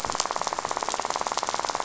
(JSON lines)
{"label": "biophony, rattle", "recorder": "SoundTrap 500"}